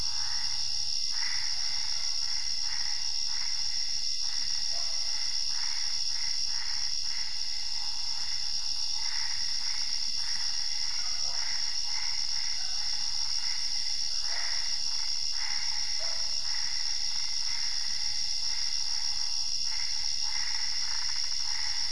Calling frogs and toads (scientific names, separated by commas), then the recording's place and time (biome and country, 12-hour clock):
Boana albopunctata
Cerrado, Brazil, 11:30pm